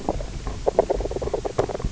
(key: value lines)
label: biophony, grazing
recorder: SoundTrap 300